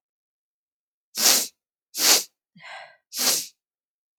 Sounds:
Sniff